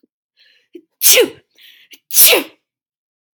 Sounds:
Sneeze